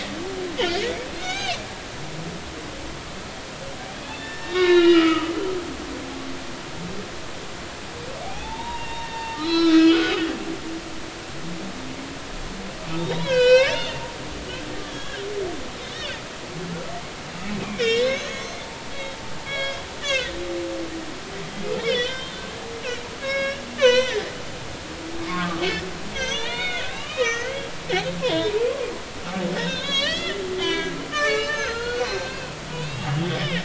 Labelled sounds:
1.2	1.6	humpback whale, 1.4 to 6.5 kHz
4.0	5.5	humpback whale, 1.0 to 5.2 kHz
8.2	10.1	humpback whale, 0.80 to 5.6 kHz
13.0	15.2	humpback whale, 0.93 to 7.7 kHz
15.9	16.2	humpback whale, 3.4 to 3.8 kHz
17.6	18.9	humpback whale, 0.86 to 6.3 kHz
19.5	20.3	humpback whale, 1.4 to 4.1 kHz
21.8	24.3	humpback whale, 0.93 to 6.2 kHz
25.3	25.6	humpback whale, 1.0 to 1.3 kHz
26.1	27.7	humpback whale, 0.86 to 6.5 kHz
28.1	28.5	humpback whale, 0.90 to 3.8 kHz
29.6	33.6	humpback whale, 0.99 to 6.8 kHz

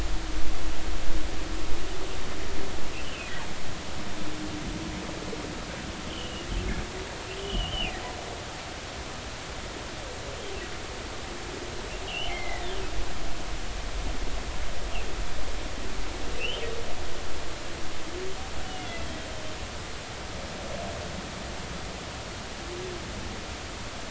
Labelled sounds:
6.1	6.5	humpback whale, 2.8 to 3.3 kHz
7.3	8.0	humpback whale, 2.3 to 3.3 kHz
12.0	12.8	humpback whale, 1.7 to 3.3 kHz
16.4	16.7	humpback whale, 2.5 to 3.3 kHz
18.6	19.1	humpback whale, 2.6 to 3.0 kHz

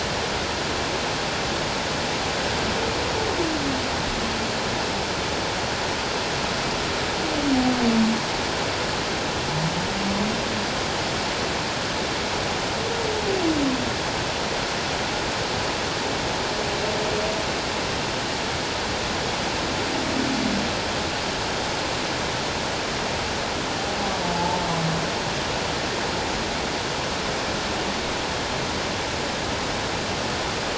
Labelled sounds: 24.3	24.6	humpback whale, 0.81 to 0.94 kHz

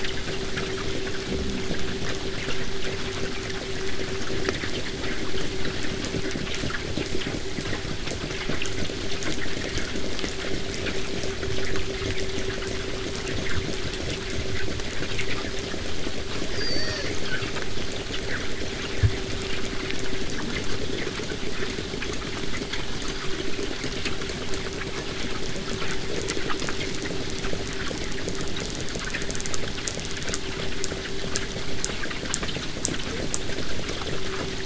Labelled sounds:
16.5	17.6	killer whale, southern resident, 0.27 to 8.0 kHz

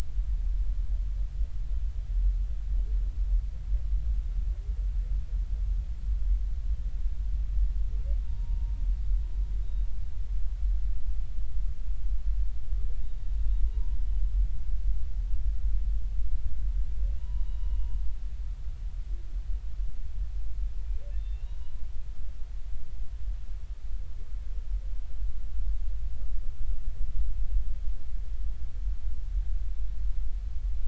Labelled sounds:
8.2	8.8	humpback whale, 0.90 to 0.99 kHz
9.6	9.9	humpback whale, 3.7 to 3.8 kHz
13.7	14.0	humpback whale, 0.93 to 1.0 kHz
17.2	18.0	humpback whale, 0.93 to 4.0 kHz
21.3	21.6	humpback whale, 2.7 to 2.9 kHz

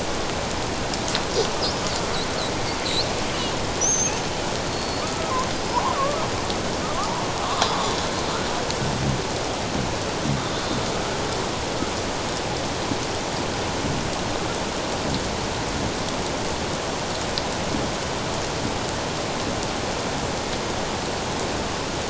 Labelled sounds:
3.8	4.1	killer whale, Bigg's (transient), 5.8 to 6.6 kHz
4.7	5.3	killer whale, Bigg's (transient), 1.1 to 4.5 kHz
5.9	6.2	killer whale, Bigg's (transient), 1.0 to 1.4 kHz

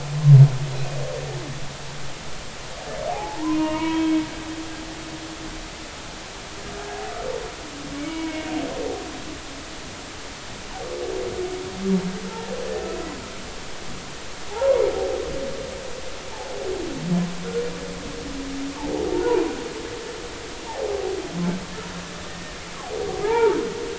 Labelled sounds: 0.7	1.0	humpback whale, 2.4 to 2.6 kHz
3.1	4.1	humpback whale, 0.80 to 3.3 kHz
7.9	8.5	humpback whale, 0.93 to 2.3 kHz
14.5	14.8	humpback whale, 0.80 to 1.1 kHz
16.3	16.5	humpback whale, 0.80 to 0.96 kHz
19.1	19.4	humpback whale, 0.83 to 1.1 kHz
20.7	21.0	humpback whale, 0.80 to 0.96 kHz
22.3	22.6	humpback whale, 1.7 to 2.0 kHz
23.2	23.6	humpback whale, 0.80 to 2.4 kHz

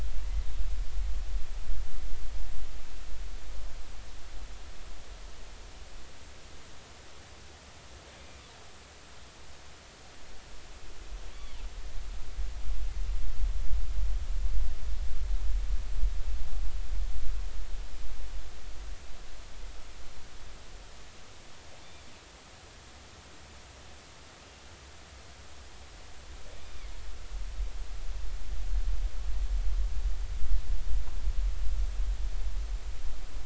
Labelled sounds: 8.1	8.4	killer whale, northern resident, A clan, call N20, 2.2 to 2.5 kHz
11.3	11.6	killer whale, northern resident, A clan, call N20, 2.9 to 3.5 kHz
21.8	22.1	killer whale, northern resident, A clan, call N20, 3.4 to 3.6 kHz
26.6	26.9	killer whale, northern resident, A clan, call N20, 2.0 to 2.5 kHz

